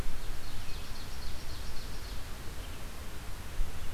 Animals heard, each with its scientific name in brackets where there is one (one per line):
Ovenbird (Seiurus aurocapilla)